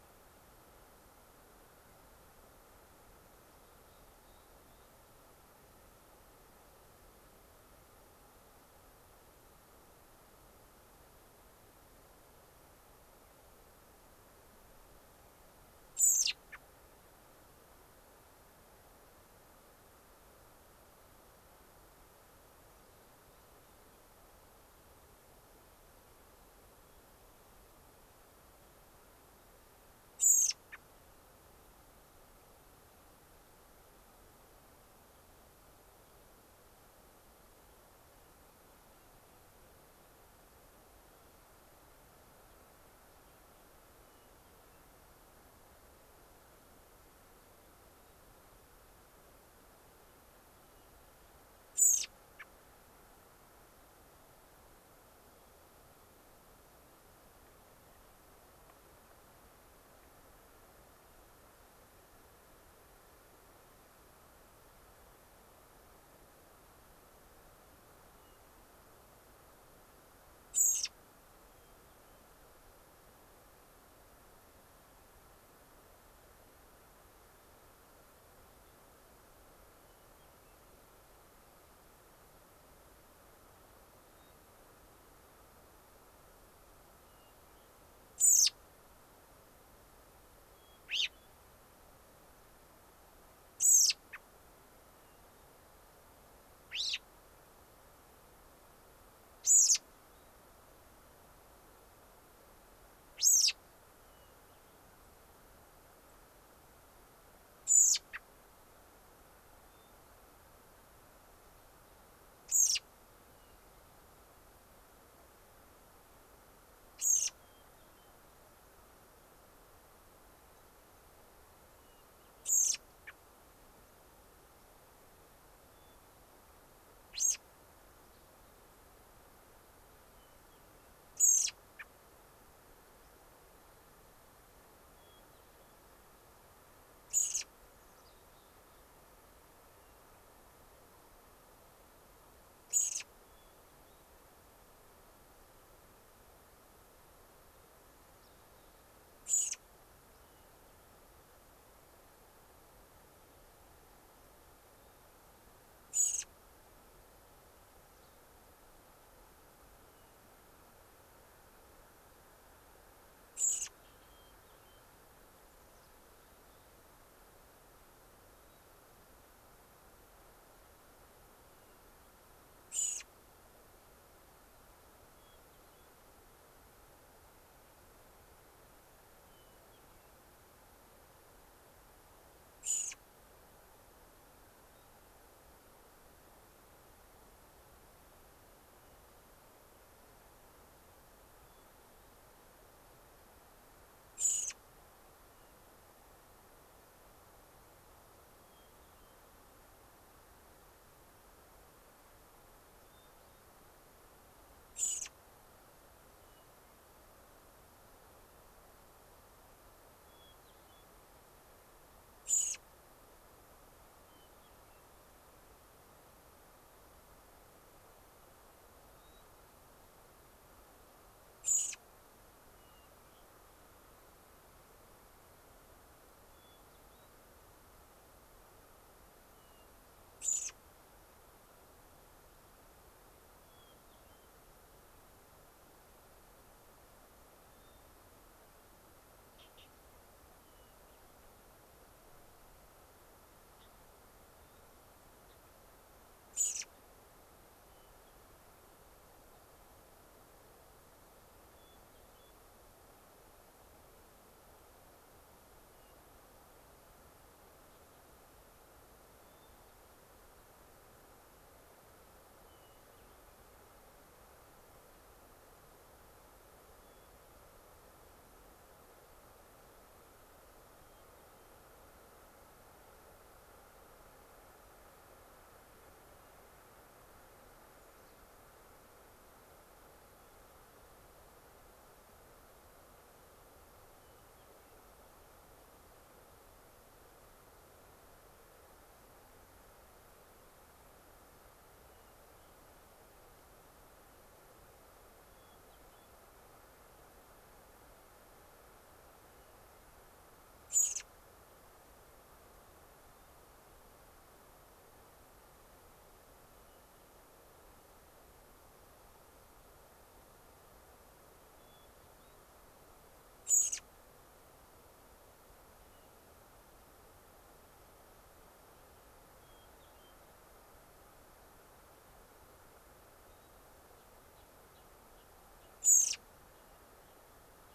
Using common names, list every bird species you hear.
Mountain Chickadee, American Robin, Hermit Thrush, Gray-crowned Rosy-Finch